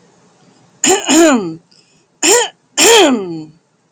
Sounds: Throat clearing